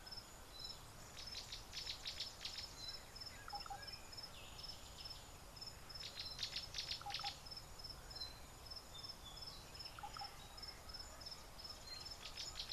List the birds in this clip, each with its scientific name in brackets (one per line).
Slate-colored Boubou (Laniarius funebris)
Gray-backed Camaroptera (Camaroptera brevicaudata)